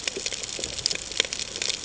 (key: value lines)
label: ambient
recorder: HydroMoth